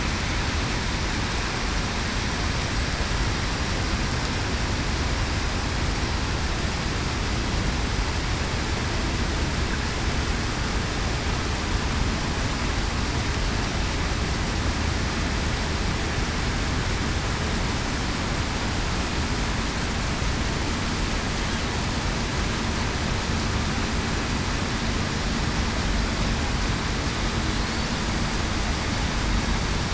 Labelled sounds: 27.5	27.9	killer whale, southern resident, 4.1 to 4.5 kHz

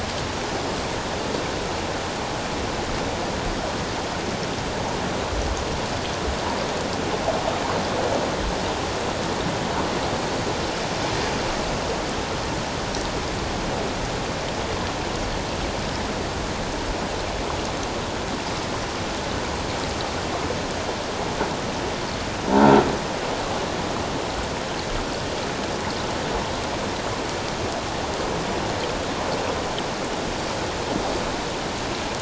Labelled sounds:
22.5	22.7	croaking sound likely from a nearby submerged object, 0.84 to 0.97 kHz

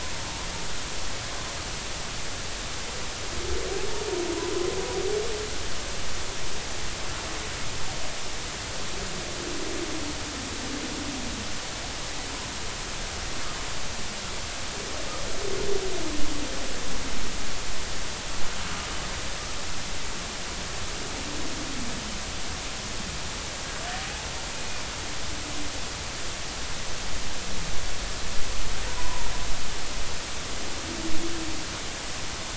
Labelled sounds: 28.8	29.3	humpback whale, 0.86 to 1.1 kHz

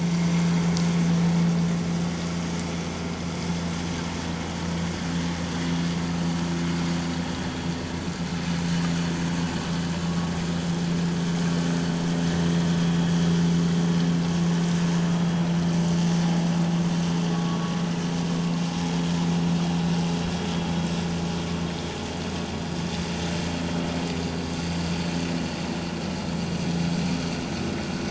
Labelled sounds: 17.3	17.6	vessel noise, 1.1 to 1.2 kHz

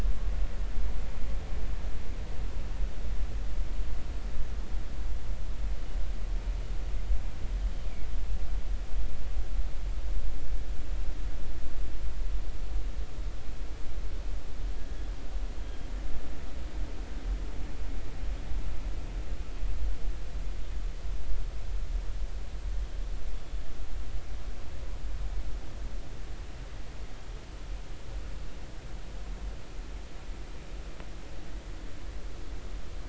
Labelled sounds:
14.8	15.1	killer whale, northern resident, G clan, GG subclan, call N28, 1.6 to 1.8 kHz
23.4	23.6	killer whale, 3.3 to 3.5 kHz

